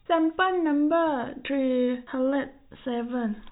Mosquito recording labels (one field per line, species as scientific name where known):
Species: no mosquito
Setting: cup